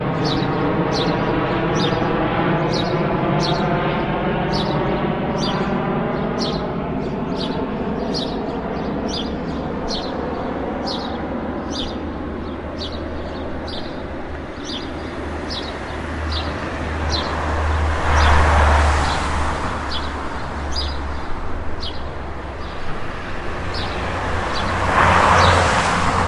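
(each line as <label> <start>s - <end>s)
A bird sings loudly and repeatedly outdoors. 0.0s - 26.3s
Two cars pass by with a pause in between. 15.6s - 26.3s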